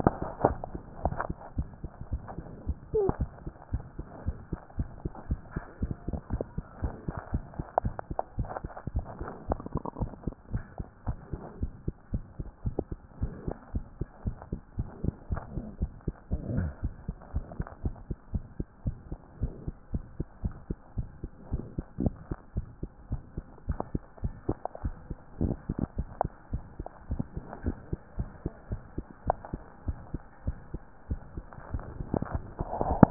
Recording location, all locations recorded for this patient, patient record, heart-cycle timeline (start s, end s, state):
tricuspid valve (TV)
aortic valve (AV)+pulmonary valve (PV)+tricuspid valve (TV)+mitral valve (MV)
#Age: Child
#Sex: Female
#Height: 116.0 cm
#Weight: 19.0 kg
#Pregnancy status: False
#Murmur: Present
#Murmur locations: aortic valve (AV)+mitral valve (MV)+pulmonary valve (PV)+tricuspid valve (TV)
#Most audible location: pulmonary valve (PV)
#Systolic murmur timing: Early-systolic
#Systolic murmur shape: Plateau
#Systolic murmur grading: II/VI
#Systolic murmur pitch: Low
#Systolic murmur quality: Harsh
#Diastolic murmur timing: nan
#Diastolic murmur shape: nan
#Diastolic murmur grading: nan
#Diastolic murmur pitch: nan
#Diastolic murmur quality: nan
#Outcome: Abnormal
#Campaign: 2015 screening campaign
0.00	3.72	unannotated
3.72	3.86	S1
3.86	3.98	systole
3.98	4.06	S2
4.06	4.22	diastole
4.22	4.36	S1
4.36	4.48	systole
4.48	4.60	S2
4.60	4.76	diastole
4.76	4.90	S1
4.90	5.02	systole
5.02	5.12	S2
5.12	5.28	diastole
5.28	5.42	S1
5.42	5.54	systole
5.54	5.64	S2
5.64	5.80	diastole
5.80	5.92	S1
5.92	6.06	systole
6.06	6.18	S2
6.18	6.32	diastole
6.32	6.46	S1
6.46	6.56	systole
6.56	6.66	S2
6.66	6.82	diastole
6.82	6.96	S1
6.96	7.06	systole
7.06	7.16	S2
7.16	7.30	diastole
7.30	7.46	S1
7.46	7.56	systole
7.56	7.66	S2
7.66	7.84	diastole
7.84	7.98	S1
7.98	8.10	systole
8.10	8.18	S2
8.18	8.36	diastole
8.36	8.50	S1
8.50	8.62	systole
8.62	8.74	S2
8.74	8.92	diastole
8.92	9.08	S1
9.08	9.20	systole
9.20	9.30	S2
9.30	9.48	diastole
9.48	9.62	S1
9.62	9.72	systole
9.72	9.82	S2
9.82	10.00	diastole
10.00	10.10	S1
10.10	10.24	systole
10.24	10.34	S2
10.34	10.52	diastole
10.52	10.66	S1
10.66	10.78	systole
10.78	10.88	S2
10.88	11.06	diastole
11.06	11.20	S1
11.20	11.34	systole
11.34	11.44	S2
11.44	11.60	diastole
11.60	11.72	S1
11.72	11.86	systole
11.86	11.96	S2
11.96	12.12	diastole
12.12	12.26	S1
12.26	12.38	systole
12.38	12.48	S2
12.48	12.64	diastole
12.64	12.76	S1
12.76	12.88	systole
12.88	13.00	S2
13.00	13.20	diastole
13.20	13.34	S1
13.34	13.46	systole
13.46	13.56	S2
13.56	13.72	diastole
13.72	13.88	S1
13.88	14.00	systole
14.00	14.10	S2
14.10	14.26	diastole
14.26	14.38	S1
14.38	14.52	systole
14.52	14.62	S2
14.62	14.78	diastole
14.78	14.88	S1
14.88	15.02	systole
15.02	15.16	S2
15.16	15.30	diastole
15.30	15.44	S1
15.44	15.56	systole
15.56	15.66	S2
15.66	15.80	diastole
15.80	15.94	S1
15.94	16.06	systole
16.06	16.16	S2
16.16	16.32	diastole
16.32	16.46	S1
16.46	16.52	systole
16.52	16.68	S2
16.68	16.82	diastole
16.82	16.94	S1
16.94	17.06	systole
17.06	17.18	S2
17.18	17.34	diastole
17.34	17.48	S1
17.48	17.58	systole
17.58	17.68	S2
17.68	17.84	diastole
17.84	17.98	S1
17.98	18.08	systole
18.08	18.18	S2
18.18	18.34	diastole
18.34	18.48	S1
18.48	18.58	systole
18.58	18.66	S2
18.66	18.86	diastole
18.86	19.00	S1
19.00	19.10	systole
19.10	19.18	S2
19.18	19.38	diastole
19.38	19.56	S1
19.56	19.66	systole
19.66	19.76	S2
19.76	19.92	diastole
19.92	20.04	S1
20.04	20.16	systole
20.16	20.28	S2
20.28	20.44	diastole
20.44	20.58	S1
20.58	20.70	systole
20.70	20.80	S2
20.80	20.96	diastole
20.96	21.10	S1
21.10	21.22	systole
21.22	21.30	S2
21.30	21.48	diastole
21.48	21.66	S1
21.66	21.74	systole
21.74	21.86	S2
21.86	22.00	diastole
22.00	33.10	unannotated